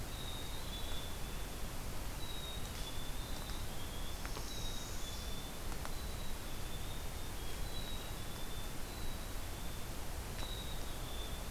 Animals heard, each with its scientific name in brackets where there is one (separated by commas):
Black-capped Chickadee (Poecile atricapillus), Northern Parula (Setophaga americana)